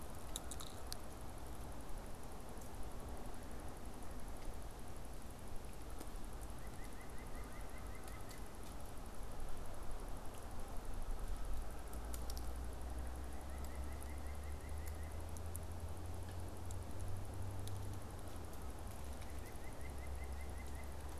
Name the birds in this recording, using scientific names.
Sitta carolinensis